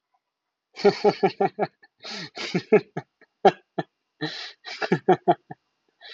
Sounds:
Laughter